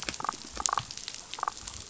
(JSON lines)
{"label": "biophony, damselfish", "recorder": "SoundTrap 500"}